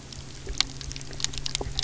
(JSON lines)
{"label": "anthrophony, boat engine", "recorder": "SoundTrap 300"}